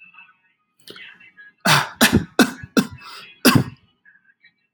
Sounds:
Cough